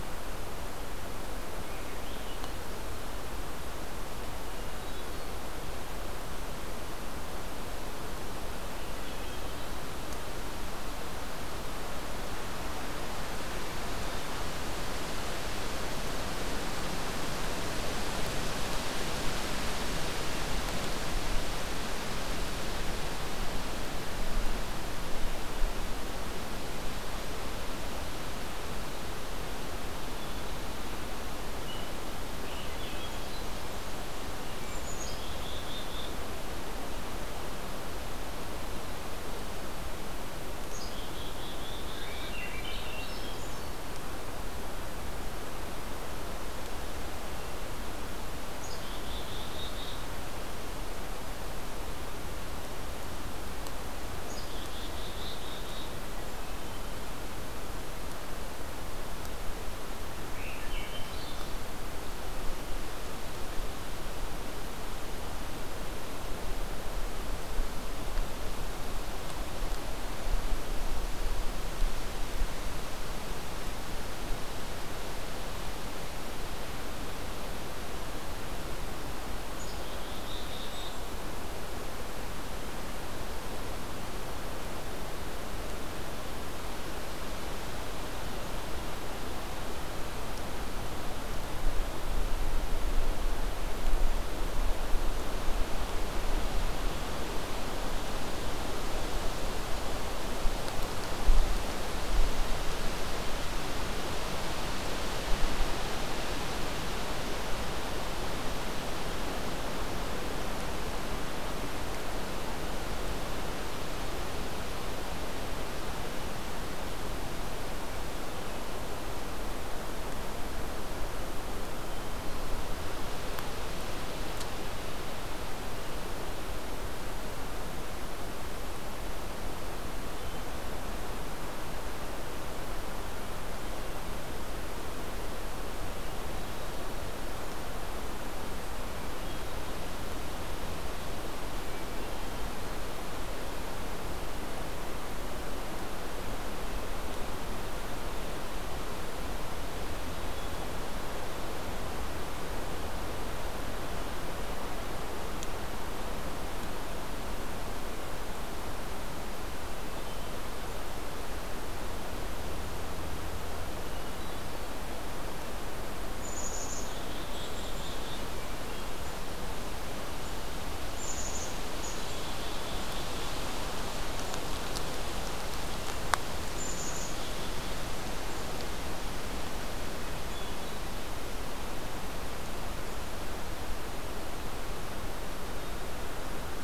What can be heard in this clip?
Swainson's Thrush, Black-capped Chickadee